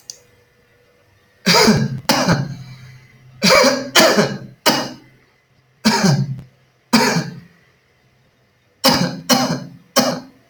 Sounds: Cough